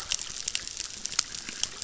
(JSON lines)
{"label": "biophony, chorus", "recorder": "SoundTrap 600"}